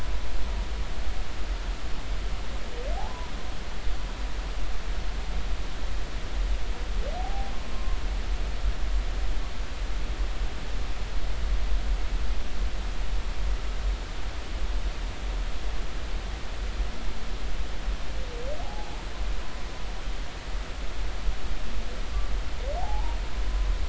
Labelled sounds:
3.0	3.3	humpback whale, 0.80 to 1.1 kHz
7.2	8.0	humpback whale, 0.80 to 1.1 kHz
18.6	18.9	humpback whale, 0.80 to 0.93 kHz
22.8	23.2	humpback whale, 0.80 to 0.99 kHz

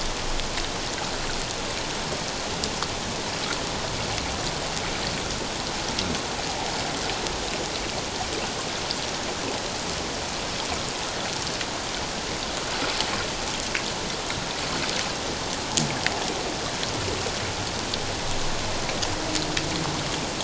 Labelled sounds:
6.5	6.7	water noise, 0.78 to 0.94 kHz

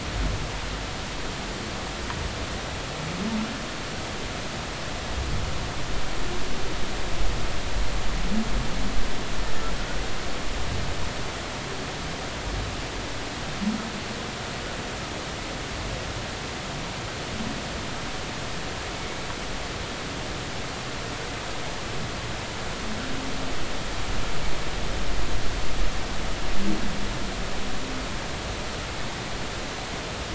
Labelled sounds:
18.9	19.2	humpback whale, 2.1 to 2.3 kHz

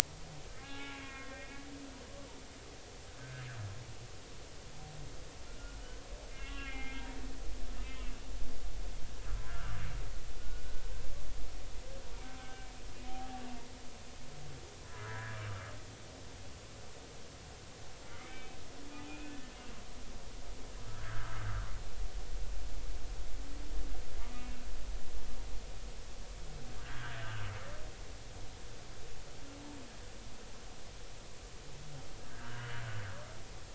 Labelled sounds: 0.6	1.6	humpback whale, 0.80 to 2.8 kHz
6.4	7.1	humpback whale, 1.3 to 3.2 kHz
7.8	8.1	humpback whale, 2.2 to 3.2 kHz
9.5	9.8	humpback whale, 1.1 to 1.8 kHz
10.4	10.6	humpback whale, 1.4 to 1.5 kHz
12.4	12.7	humpback whale, 1.5 to 1.6 kHz
14.9	15.4	humpback whale, 1.5 to 1.8 kHz
18.1	18.6	humpback whale, 2.0 to 2.6 kHz
18.9	19.5	humpback whale, 1.7 to 2.6 kHz
20.9	21.4	humpback whale, 1.2 to 2.0 kHz
24.4	24.6	humpback whale, 2.6 to 2.8 kHz
26.8	27.2	humpback whale, 1.4 to 1.9 kHz
32.3	32.8	humpback whale, 1.5 to 3.0 kHz

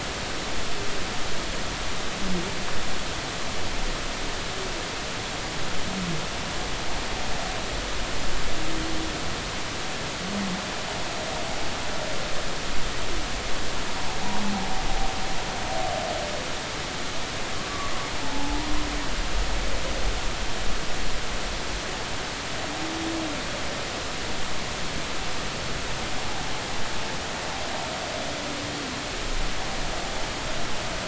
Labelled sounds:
18.2	18.7	humpback whale, 0.80 to 0.99 kHz

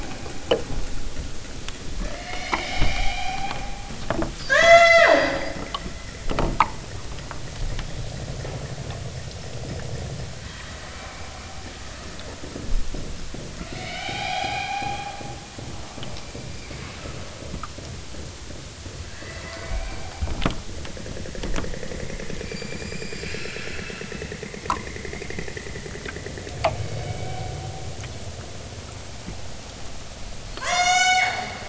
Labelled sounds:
1.9	4.0	killer whale, southern Alaska resident, 0.32 to 6.7 kHz
4.3	5.5	killer whale, southern Alaska resident, 0.41 to 8.0 kHz
10.4	11.8	killer whale, southern Alaska resident, 0.41 to 4.5 kHz
13.5	17.4	killer whale, southern Alaska resident, 0.46 to 8.0 kHz
19.1	20.4	killer whale, southern Alaska resident, 0.41 to 5.5 kHz
22.4	24.4	killer whale, southern Alaska resident, 0.87 to 7.9 kHz
26.7	27.5	killer whale, southern Alaska resident, 0.96 to 5.2 kHz
30.4	31.5	killer whale, southern Alaska resident, 0.37 to 8.0 kHz

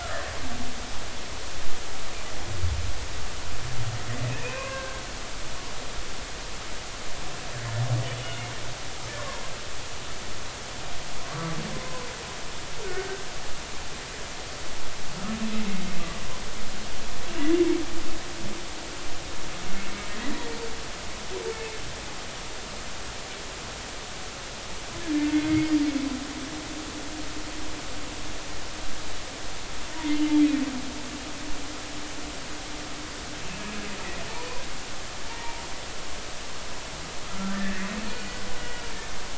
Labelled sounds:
4.3	5.0	humpback whale, 0.99 to 2.7 kHz
8.2	8.5	humpback whale, 2.8 to 2.9 kHz
11.3	12.1	humpback whale, 0.96 to 1.2 kHz
12.8	13.2	humpback whale, 1.4 to 1.6 kHz
16.0	16.2	humpback whale, 1.0 to 1.2 kHz
25.3	25.7	humpback whale, 2.0 to 2.2 kHz
35.3	35.6	humpback whale, 0.86 to 0.99 kHz
37.3	37.9	humpback whale, 1.2 to 2.0 kHz
38.1	38.4	humpback whale, 4.4 to 4.6 kHz

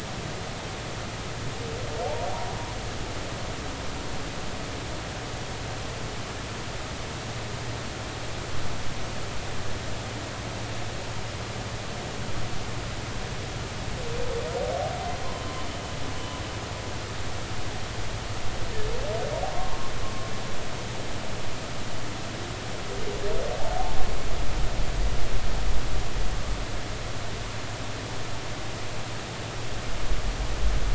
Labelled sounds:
2.3	2.5	humpback whale, 0.80 to 0.99 kHz
16.2	16.4	humpback whale, 2.9 to 3.0 kHz
19.5	19.8	humpback whale, 1.0 to 1.1 kHz

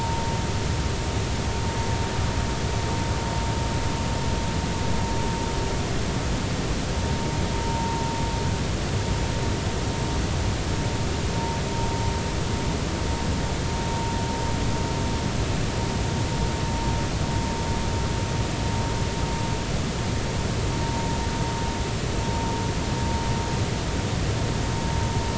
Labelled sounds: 7.6	8.0	vessel noise, 0.86 to 0.96 kHz
20.8	21.2	vessel noise, 0.86 to 0.96 kHz

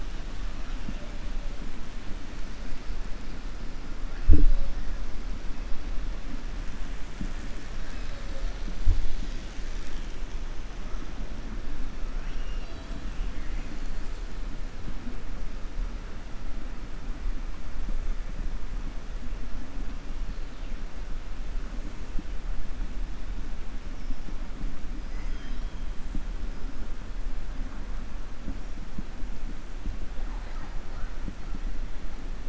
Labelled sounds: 12.1	13.0	killer whale, 2.0 to 5.6 kHz

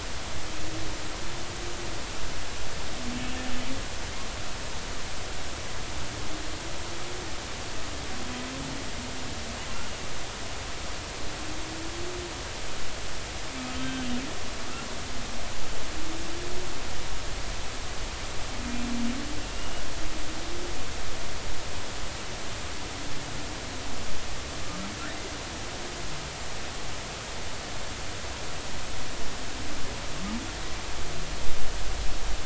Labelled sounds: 13.8	14.2	humpback whale, 1.5 to 3.2 kHz

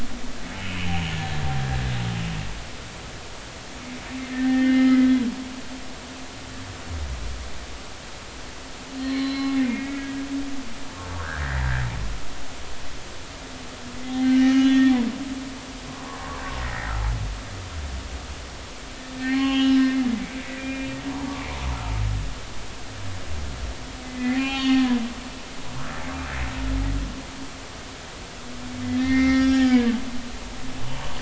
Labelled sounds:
1.1	1.4	humpback whale, 1.7 to 1.8 kHz
4.3	5.1	humpback whale, 1.7 to 2.3 kHz
8.9	10.1	humpback whale, 1.9 to 4.4 kHz
11.4	11.7	humpback whale, 1.5 to 2.0 kHz
14.3	14.9	humpback whale, 1.6 to 3.2 kHz
16.6	16.9	humpback whale, 1.8 to 2.1 kHz
19.2	19.9	humpback whale, 0.80 to 4.4 kHz
20.6	21.5	humpback whale, 0.83 to 2.5 kHz
24.0	25.0	humpback whale, 0.80 to 5.6 kHz
28.9	29.9	humpback whale, 1.3 to 5.6 kHz

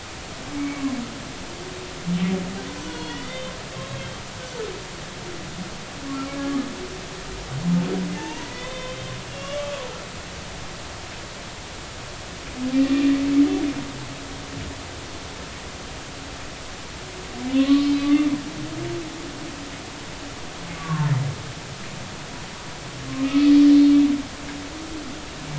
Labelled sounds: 0.5	0.9	humpback whale, 2.2 to 2.3 kHz
2.8	3.6	humpback whale, 0.93 to 4.4 kHz
3.8	4.1	humpback whale, 2.6 to 2.8 kHz
6.3	6.6	humpback whale, 1.6 to 1.7 kHz
8.2	9.9	humpback whale, 0.83 to 3.7 kHz
17.6	18.3	humpback whale, 1.0 to 3.6 kHz
20.8	21.1	humpback whale, 1.0 to 1.2 kHz
23.2	23.5	humpback whale, 1.2 to 2.6 kHz

